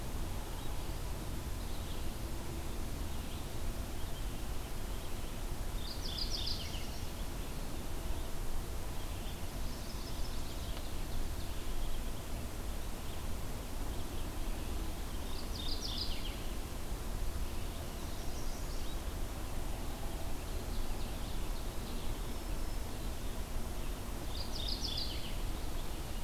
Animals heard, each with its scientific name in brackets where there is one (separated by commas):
Ovenbird (Seiurus aurocapilla), Black-throated Green Warbler (Setophaga virens), Chestnut-sided Warbler (Setophaga pensylvanica), Red-eyed Vireo (Vireo olivaceus), Mourning Warbler (Geothlypis philadelphia)